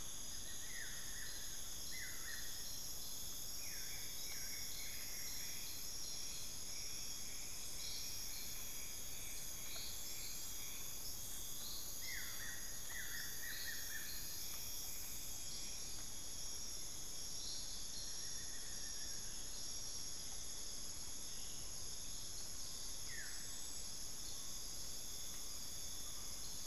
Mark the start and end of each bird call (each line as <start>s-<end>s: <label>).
0.1s-5.7s: Buff-throated Woodcreeper (Xiphorhynchus guttatus)
9.1s-13.3s: unidentified bird
11.8s-19.5s: Buff-throated Woodcreeper (Xiphorhynchus guttatus)
22.9s-23.6s: Buff-throated Woodcreeper (Xiphorhynchus guttatus)
24.1s-26.5s: Collared Forest-Falcon (Micrastur semitorquatus)